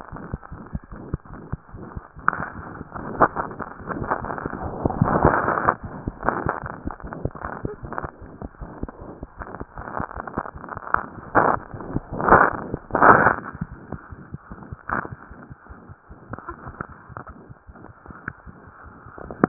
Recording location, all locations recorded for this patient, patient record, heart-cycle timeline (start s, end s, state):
aortic valve (AV)
aortic valve (AV)+mitral valve (MV)
#Age: Infant
#Sex: Female
#Height: 61.0 cm
#Weight: 5.4 kg
#Pregnancy status: False
#Murmur: Present
#Murmur locations: aortic valve (AV)+mitral valve (MV)
#Most audible location: mitral valve (MV)
#Systolic murmur timing: Holosystolic
#Systolic murmur shape: Plateau
#Systolic murmur grading: I/VI
#Systolic murmur pitch: High
#Systolic murmur quality: Harsh
#Diastolic murmur timing: nan
#Diastolic murmur shape: nan
#Diastolic murmur grading: nan
#Diastolic murmur pitch: nan
#Diastolic murmur quality: nan
#Outcome: Abnormal
#Campaign: 2015 screening campaign
0.00	0.10	unannotated
0.10	0.20	S1
0.20	0.30	systole
0.30	0.39	S2
0.39	0.49	diastole
0.49	0.57	S1
0.57	0.71	systole
0.71	0.80	S2
0.80	0.91	diastole
0.91	0.96	S1
0.96	1.11	systole
1.11	1.18	S2
1.18	1.29	diastole
1.29	1.37	S1
1.37	1.50	systole
1.50	1.57	S2
1.57	1.71	diastole
1.71	1.79	S1
1.79	1.94	systole
1.94	2.02	S2
2.02	2.15	diastole
2.15	2.23	S1
2.23	19.49	unannotated